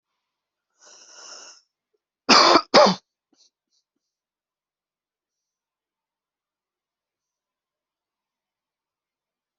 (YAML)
expert_labels:
- quality: ok
  cough_type: dry
  dyspnea: false
  wheezing: false
  stridor: false
  choking: false
  congestion: false
  nothing: true
  diagnosis: lower respiratory tract infection
  severity: mild
age: 32
gender: male
respiratory_condition: true
fever_muscle_pain: true
status: symptomatic